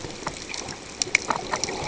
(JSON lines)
{"label": "ambient", "recorder": "HydroMoth"}